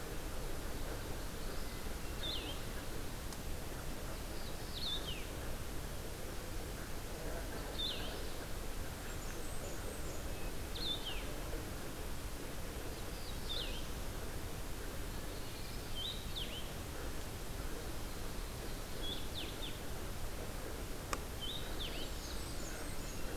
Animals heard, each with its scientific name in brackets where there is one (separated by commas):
Magnolia Warbler (Setophaga magnolia), Blackburnian Warbler (Setophaga fusca), Blue-headed Vireo (Vireo solitarius)